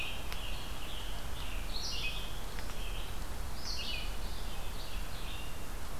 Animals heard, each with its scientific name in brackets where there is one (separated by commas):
Red-eyed Vireo (Vireo olivaceus), Scarlet Tanager (Piranga olivacea)